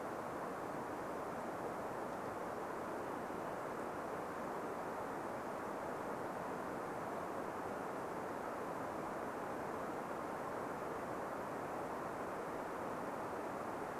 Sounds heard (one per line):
Varied Thrush song
Golden-crowned Kinglet call